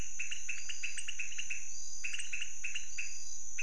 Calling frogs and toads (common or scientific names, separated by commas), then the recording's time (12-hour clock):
pointedbelly frog
2:30am